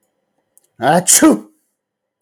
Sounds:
Sneeze